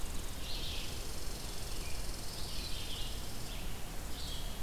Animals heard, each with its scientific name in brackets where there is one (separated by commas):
Red Squirrel (Tamiasciurus hudsonicus), Red-eyed Vireo (Vireo olivaceus)